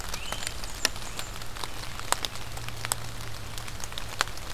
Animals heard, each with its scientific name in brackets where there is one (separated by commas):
Blackburnian Warbler (Setophaga fusca), Great Crested Flycatcher (Myiarchus crinitus)